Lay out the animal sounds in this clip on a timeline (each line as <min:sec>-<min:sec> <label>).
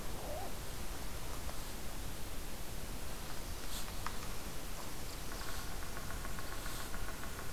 0:05.3-0:07.5 unknown woodpecker